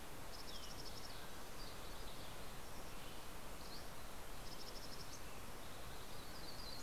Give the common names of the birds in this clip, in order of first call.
Mountain Chickadee, Mountain Quail, Green-tailed Towhee, Red-breasted Nuthatch, Yellow-rumped Warbler